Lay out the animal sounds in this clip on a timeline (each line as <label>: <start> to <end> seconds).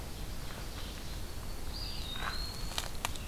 Ovenbird (Seiurus aurocapilla): 0.0 to 1.3 seconds
Red-eyed Vireo (Vireo olivaceus): 0.0 to 3.3 seconds
Black-throated Green Warbler (Setophaga virens): 0.6 to 1.7 seconds
Eastern Wood-Pewee (Contopus virens): 1.5 to 3.1 seconds